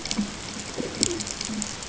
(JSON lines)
{"label": "ambient", "recorder": "HydroMoth"}